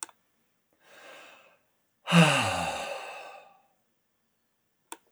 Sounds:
Sigh